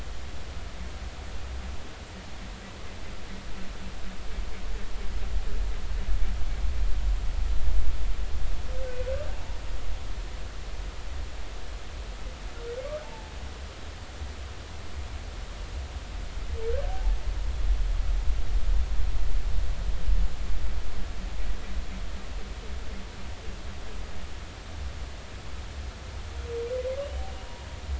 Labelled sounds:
13.0	13.3	humpback whale, 0.83 to 0.96 kHz
16.9	17.1	humpback whale, 0.80 to 0.93 kHz
27.0	27.3	humpback whale, 2.8 to 3.1 kHz

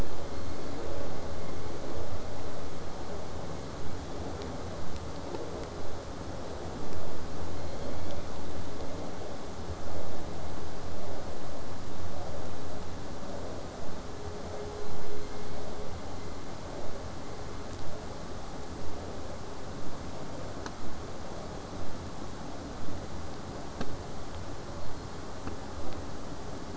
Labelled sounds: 0.0	1.1	killer whale, southern resident, J pod, 1.8 to 5.1 kHz
7.5	8.6	killer whale, southern resident, J pod, call S01, 1.9 to 4.6 kHz
14.5	15.6	killer whale, southern resident, J pod, 1.8 to 7.2 kHz
17.8	22.8	vessel noise, 0 to 8.0 kHz
24.6	25.3	killer whale, southern resident, J pod, 4.0 to 4.4 kHz

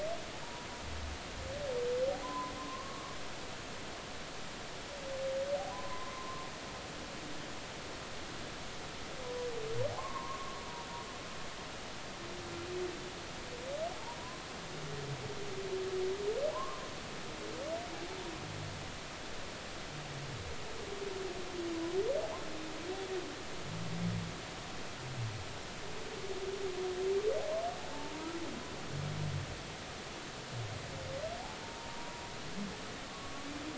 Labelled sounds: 0.4	0.7	humpback whale, 0.90 to 1.0 kHz
2.2	3.0	humpback whale, 0.96 to 1.2 kHz
5.7	6.5	humpback whale, 0.93 to 1.2 kHz
9.9	10.6	humpback whale, 0.80 to 1.2 kHz
16.5	16.9	humpback whale, 0.80 to 1.2 kHz
27.9	28.3	humpback whale, 0.83 to 0.99 kHz
31.6	32.2	humpback whale, 0.86 to 0.99 kHz

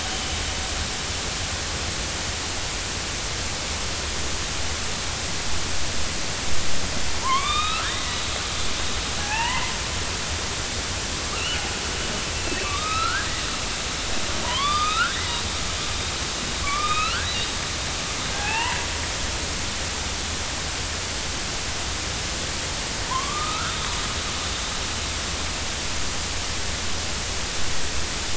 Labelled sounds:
7.2	8.2	killer whale, northern resident, A clan, AB subclan, 0.86 to 4.1 kHz
9.2	9.7	killer whale, northern resident, A clan, AB subclan, 0.80 to 3.1 kHz
11.3	13.3	killer whale, northern resident, A clan, AB subclan, 0.99 to 4.3 kHz
14.4	15.4	killer whale, northern resident, A clan, AB subclan, 0.90 to 3.9 kHz
16.6	17.3	killer whale, northern resident, A clan, AB subclan, 1.0 to 4.7 kHz
18.3	18.8	killer whale, northern resident, A clan, AB subclan, 0.80 to 3.0 kHz
23.1	23.8	killer whale, northern resident, A clan, AB subclan, 0.90 to 1.6 kHz

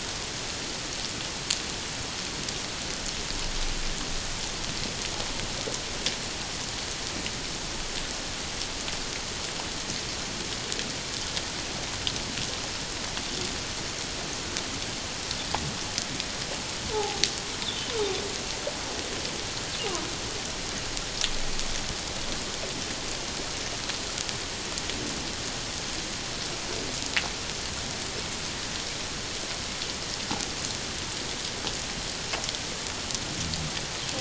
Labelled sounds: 16.9	17.2	humpback whale, 0.78 to 1.0 kHz

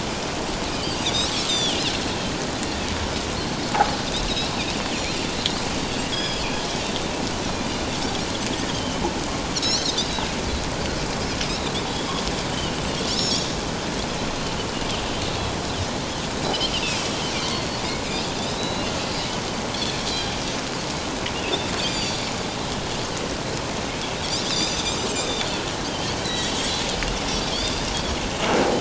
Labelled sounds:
0.8	1.8	Pacific white-sided dolphin, 3.0 to 7.7 kHz
6.1	6.5	Pacific white-sided dolphin, 3.2 to 5.2 kHz
8.7	9.9	Pacific white-sided dolphin, 2.9 to 6.3 kHz
11.4	11.8	Pacific white-sided dolphin, 3.5 to 4.1 kHz
12.5	13.5	Pacific white-sided dolphin, 2.8 to 7.0 kHz
16.7	17.8	Pacific white-sided dolphin, 2.3 to 4.5 kHz
18.4	18.9	Pacific white-sided dolphin, 2.7 to 4.2 kHz
21.5	22.3	Pacific white-sided dolphin, 3.4 to 7.3 kHz
24.4	25.3	Pacific white-sided dolphin, 2.3 to 5.1 kHz
25.9	26.8	Pacific white-sided dolphin, 1.8 to 4.2 kHz
27.3	27.7	Pacific white-sided dolphin, 3.1 to 3.7 kHz

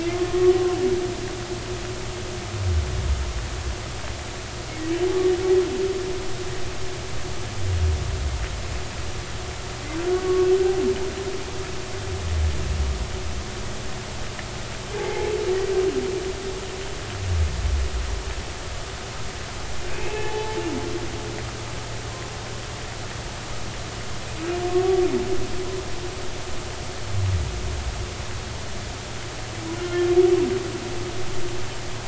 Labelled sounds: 0.3	0.5	humpback whale, 0.99 to 1.2 kHz
10.1	10.5	humpback whale, 1.1 to 1.2 kHz
15.0	15.3	humpback whale, 0.80 to 2.3 kHz
19.9	20.6	humpback whale, 0.80 to 2.7 kHz
29.8	30.1	humpback whale, 3.1 to 3.3 kHz

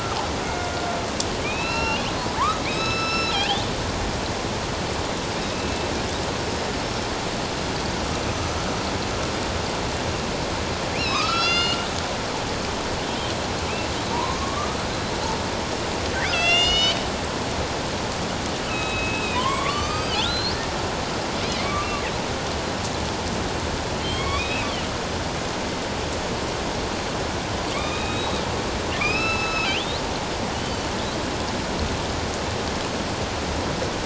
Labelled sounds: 0.4	0.7	killer whale, northern resident, A clan, AB subclan, 1.4 to 2.2 kHz
1.4	2.0	killer whale, northern resident, A clan, AB subclan, 1.3 to 5.5 kHz
2.6	3.6	killer whale, northern resident, A clan, AB subclan, 0.78 to 8.0 kHz
5.5	5.9	killer whale, northern resident, A clan, AB subclan, 2.5 to 2.7 kHz
8.3	8.7	killer whale, northern resident, A clan, AB subclan, 6.0 to 6.2 kHz
10.9	11.9	killer whale, northern resident, A clan, AB subclan, 1.0 to 6.4 kHz
14.1	14.8	killer whale, northern resident, A clan, AB subclan, 0.88 to 1.3 kHz
16.2	17.0	killer whale, northern resident, A clan, AB subclan, 1.3 to 7.9 kHz
18.7	20.5	killer whale, northern resident, A clan, AB subclan, 0.94 to 6.3 kHz
21.5	22.0	killer whale, northern resident, A clan, AB subclan, 1.1 to 2.3 kHz
24.0	24.7	killer whale, northern resident, A clan, AB subclan, 1.0 to 4.6 kHz
27.7	28.4	killer whale, northern resident, A clan, AB subclan, 1.1 to 3.9 kHz
29.0	30.9	killer whale, northern resident, A clan, AB subclan, 1.1 to 6.6 kHz

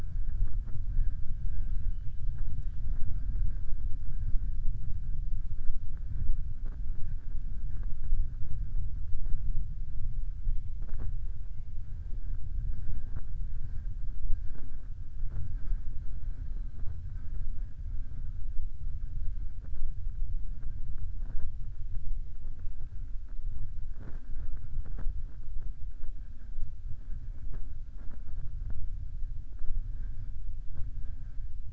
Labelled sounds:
1.4	2.2	killer whale, southern resident, 1.3 to 4.1 kHz

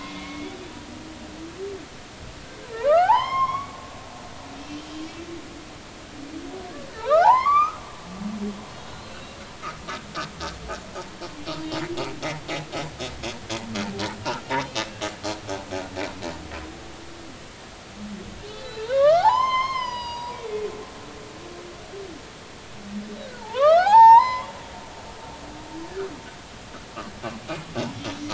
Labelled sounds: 0.0	0.6	humpback whale, 1.0 to 2.3 kHz
2.8	3.7	humpback whale, 0.80 to 5.4 kHz
6.9	7.8	humpback whale, 0.80 to 5.1 kHz
9.0	9.4	humpback whale, 2.6 to 4.1 kHz
14.2	14.9	humpback whale, 1.2 to 3.8 kHz
18.5	20.4	humpback whale, 0.80 to 6.4 kHz
23.4	24.5	humpback whale, 0.80 to 6.6 kHz
27.9	28.2	humpback whale, 3.4 to 3.5 kHz

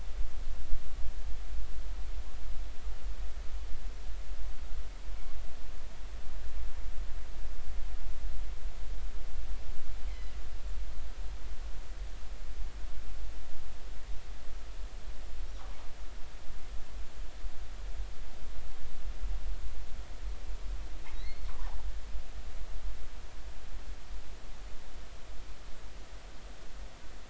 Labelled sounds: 10.1	10.3	killer whale, northern resident, G clan, GG subclan, call N23ii, 1.9 to 2.3 kHz
21.1	21.5	killer whale, northern resident, G clan, GG subclan, call N29, 1.9 to 4.5 kHz

